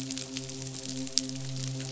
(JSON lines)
{"label": "biophony, midshipman", "recorder": "SoundTrap 500"}